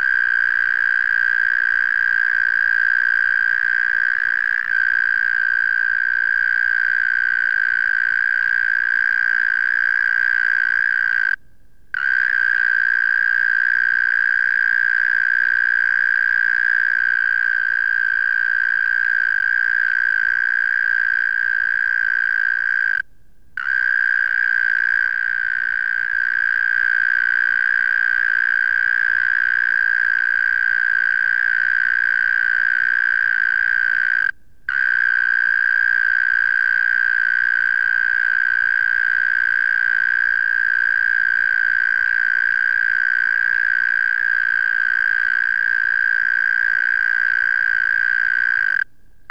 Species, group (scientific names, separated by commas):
Gryllotalpa gryllotalpa, Orthoptera